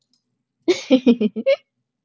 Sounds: Laughter